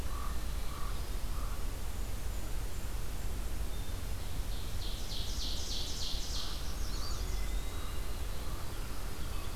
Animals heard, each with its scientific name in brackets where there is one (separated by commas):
Northern Parula (Setophaga americana), Blackburnian Warbler (Setophaga fusca), Common Raven (Corvus corax), Hermit Thrush (Catharus guttatus), Black-throated Blue Warbler (Setophaga caerulescens), Ovenbird (Seiurus aurocapilla), Eastern Wood-Pewee (Contopus virens)